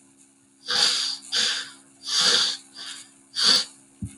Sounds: Sneeze